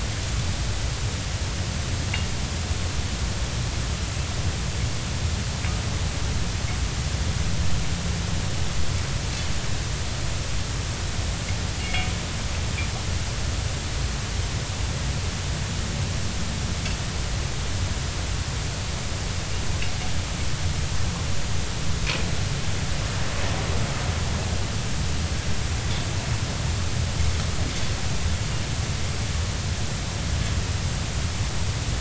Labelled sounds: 11.8	12.1	anchor noise, 2.1 to 2.3 kHz

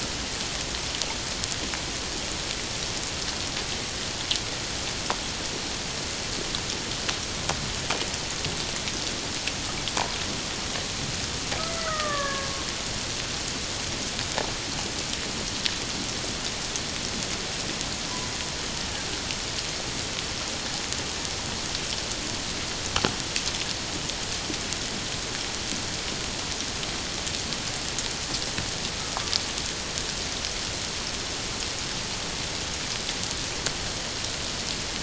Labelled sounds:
11.7	12.5	killer whale, Bigg's (transient), 1.0 to 2.2 kHz

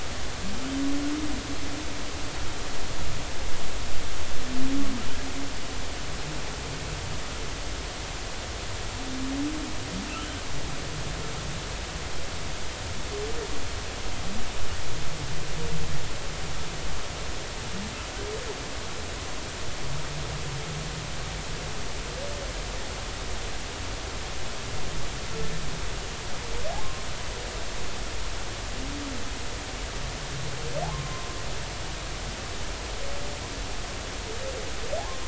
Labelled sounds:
30.9	31.3	humpback whale, 0.99 to 1.2 kHz

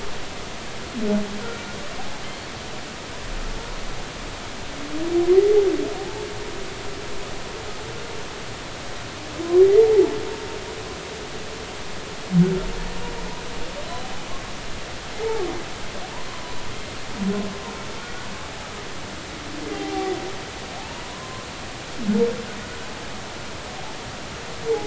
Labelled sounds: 6.0	6.3	humpback whale, 0.80 to 0.93 kHz
9.6	10.1	humpback whale, 0.80 to 2.1 kHz
16.1	16.6	humpback whale, 0.90 to 1.2 kHz
18.0	18.3	humpback whale, 1.4 to 1.5 kHz
19.7	21.5	humpback whale, 0.80 to 1.1 kHz

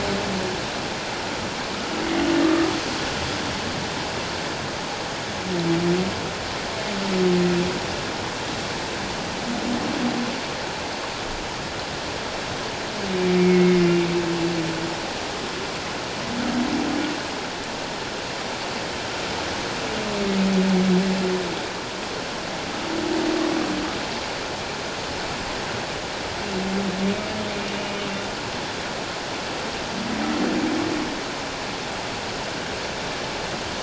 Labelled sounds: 13.2	14.1	humpback whale, 2.0 to 2.8 kHz

